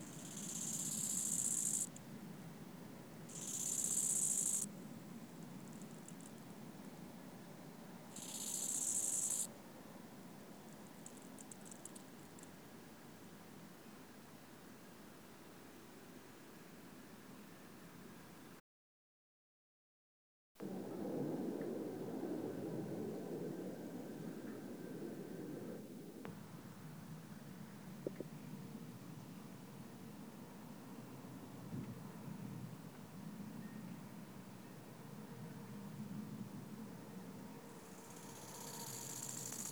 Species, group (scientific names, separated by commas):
Chorthippus biguttulus, Orthoptera